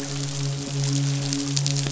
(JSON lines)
{"label": "biophony, midshipman", "recorder": "SoundTrap 500"}